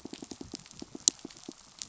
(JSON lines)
{"label": "biophony, pulse", "recorder": "SoundTrap 500"}